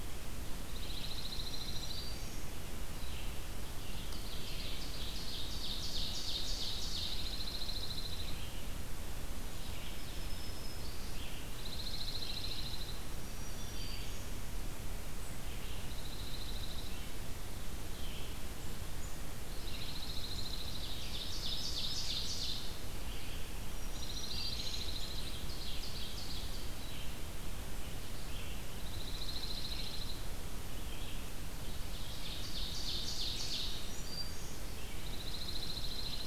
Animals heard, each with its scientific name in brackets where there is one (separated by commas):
Red-eyed Vireo (Vireo olivaceus), Dark-eyed Junco (Junco hyemalis), Black-throated Green Warbler (Setophaga virens), Ovenbird (Seiurus aurocapilla)